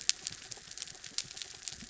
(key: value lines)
label: anthrophony, mechanical
recorder: SoundTrap 300